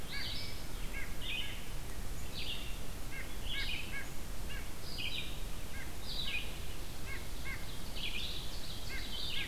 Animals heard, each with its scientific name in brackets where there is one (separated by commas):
White-breasted Nuthatch (Sitta carolinensis), Ovenbird (Seiurus aurocapilla), Red-eyed Vireo (Vireo olivaceus)